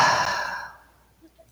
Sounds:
Sigh